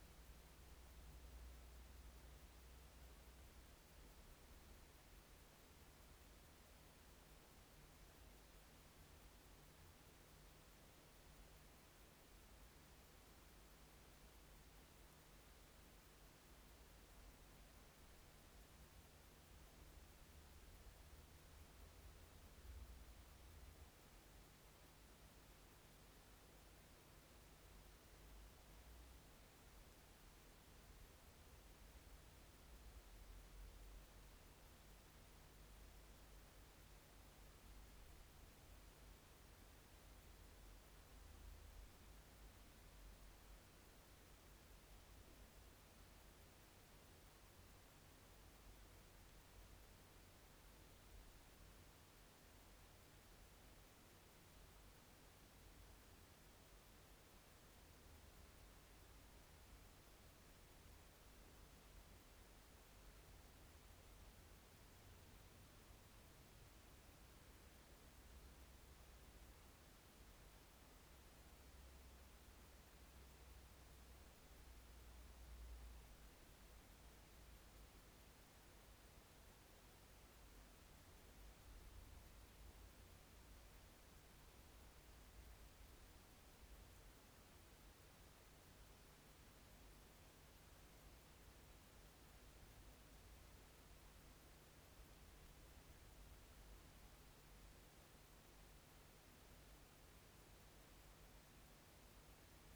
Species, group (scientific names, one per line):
Chorthippus acroleucus
Orthoptera